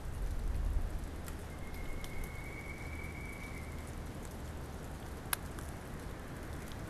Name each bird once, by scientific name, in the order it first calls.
Dryocopus pileatus